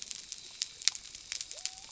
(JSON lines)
{"label": "biophony", "recorder": "SoundTrap 300"}